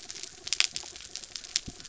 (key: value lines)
label: anthrophony, mechanical
recorder: SoundTrap 300